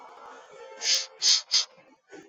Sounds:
Sniff